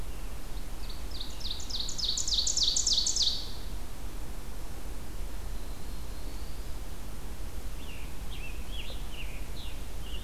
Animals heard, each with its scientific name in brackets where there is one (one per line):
Ovenbird (Seiurus aurocapilla)
Scarlet Tanager (Piranga olivacea)
Prairie Warbler (Setophaga discolor)